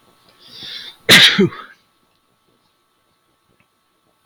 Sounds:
Sneeze